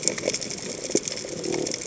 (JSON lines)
{"label": "biophony", "recorder": "HydroMoth"}